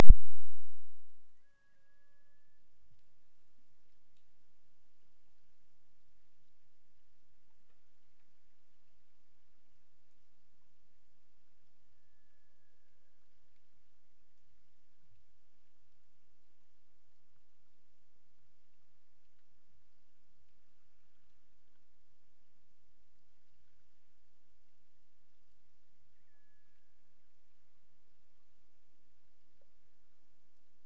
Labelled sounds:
1.3	2.7	killer whale, Bigg's (transient), AT1 transient, 0.42 to 2.4 kHz
11.9	13.6	killer whale, Bigg's (transient), AT1 transient, 0.35 to 1.9 kHz
26.1	27.0	killer whale, Bigg's (transient), AT1 transient, 0.92 to 3.0 kHz

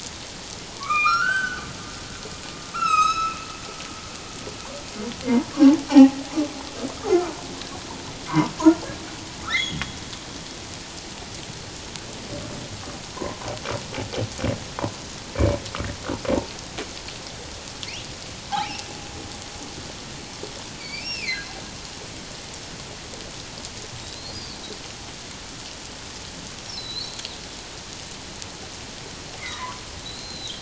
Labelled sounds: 0.8	1.6	humpback whale, 1.0 to 3.2 kHz
2.7	3.4	humpback whale, 1.2 to 8.0 kHz
5.9	6.2	humpback whale, 0.78 to 1.0 kHz
8.3	8.5	humpback whale, 0.91 to 1.3 kHz
9.5	10.0	humpback whale, 1.7 to 4.2 kHz
13.1	13.4	humpback whale, 0.91 to 1.1 kHz
18.5	18.8	humpback whale, 0.78 to 1.1 kHz
20.8	21.5	humpback whale, 1.9 to 5.6 kHz
24.0	24.6	humpback whale, 3.7 to 5.0 kHz
26.7	27.2	humpback whale, 3.8 to 4.6 kHz
29.5	30.5	humpback whale, 0.94 to 4.3 kHz

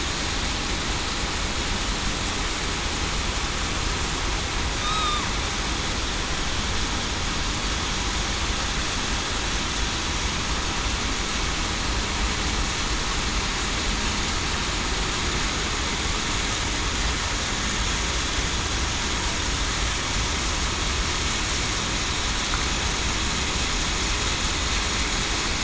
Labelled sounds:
4.8	5.2	killer whale, southern resident, 3.6 to 3.8 kHz

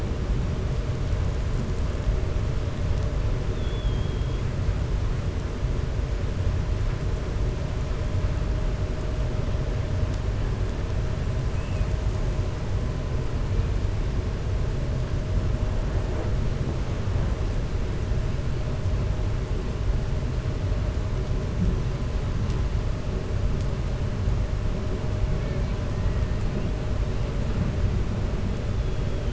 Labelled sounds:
3.5	4.4	killer whale, 3.2 to 3.7 kHz

